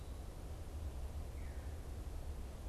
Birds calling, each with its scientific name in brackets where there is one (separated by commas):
Veery (Catharus fuscescens), Eastern Wood-Pewee (Contopus virens)